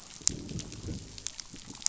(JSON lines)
{"label": "biophony, growl", "recorder": "SoundTrap 500"}